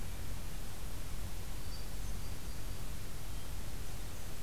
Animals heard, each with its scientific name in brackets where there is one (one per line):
Hermit Thrush (Catharus guttatus)